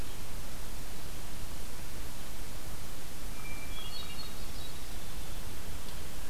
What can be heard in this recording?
Hermit Thrush